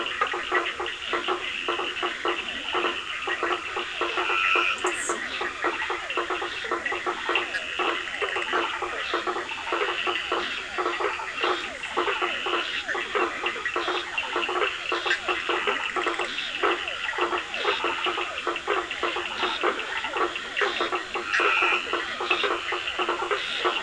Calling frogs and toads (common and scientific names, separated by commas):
Leptodactylus latrans, Scinax perereca, blacksmith tree frog (Boana faber), Physalaemus cuvieri, Cochran's lime tree frog (Sphaenorhynchus surdus), two-colored oval frog (Elachistocleis bicolor), Dendropsophus nahdereri, Bischoff's tree frog (Boana bischoffi)